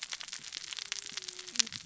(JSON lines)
{"label": "biophony, cascading saw", "recorder": "SoundTrap 600 or HydroMoth"}